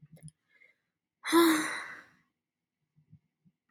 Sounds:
Sigh